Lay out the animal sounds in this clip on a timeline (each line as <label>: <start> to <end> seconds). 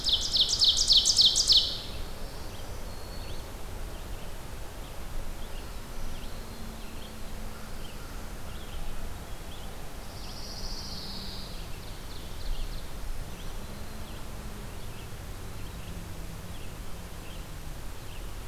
Ovenbird (Seiurus aurocapilla): 0.0 to 2.0 seconds
Red-eyed Vireo (Vireo olivaceus): 0.0 to 6.3 seconds
Black-throated Green Warbler (Setophaga virens): 2.1 to 3.6 seconds
Black-throated Green Warbler (Setophaga virens): 5.4 to 6.9 seconds
Red-eyed Vireo (Vireo olivaceus): 6.7 to 18.5 seconds
Pine Warbler (Setophaga pinus): 9.7 to 11.6 seconds
Ovenbird (Seiurus aurocapilla): 11.3 to 13.1 seconds
Black-throated Green Warbler (Setophaga virens): 12.9 to 14.4 seconds